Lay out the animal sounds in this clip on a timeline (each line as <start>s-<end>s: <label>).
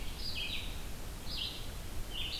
0.0s-2.4s: Red-eyed Vireo (Vireo olivaceus)